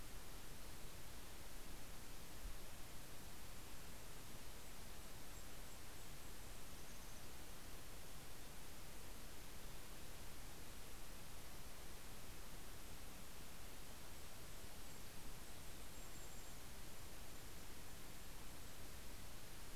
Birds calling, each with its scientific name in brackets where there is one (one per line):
Golden-crowned Kinglet (Regulus satrapa)